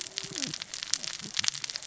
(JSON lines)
{"label": "biophony, cascading saw", "recorder": "SoundTrap 600 or HydroMoth"}